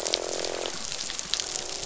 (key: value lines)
label: biophony, croak
recorder: SoundTrap 500